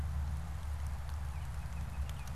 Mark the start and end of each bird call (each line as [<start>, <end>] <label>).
[0.94, 2.35] Baltimore Oriole (Icterus galbula)